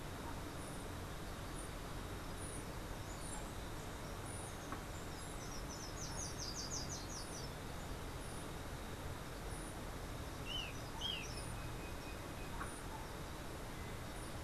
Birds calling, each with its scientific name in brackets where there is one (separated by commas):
Slate-throated Redstart (Myioborus miniatus), Golden-faced Tyrannulet (Zimmerius chrysops)